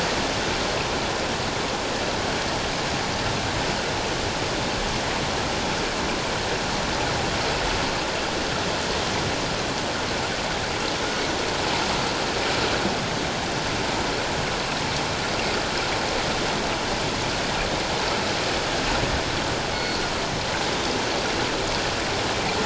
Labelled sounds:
19.7	20.0	killer whale, northern resident, G clan, 2.1 to 5.9 kHz

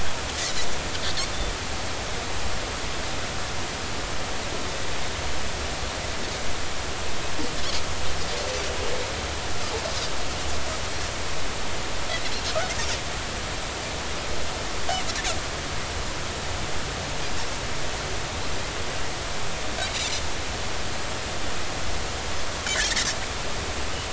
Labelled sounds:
22.6	24.1	Pacific white-sided dolphin, 1.4 to 3.3 kHz

